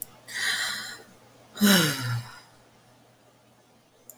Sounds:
Sigh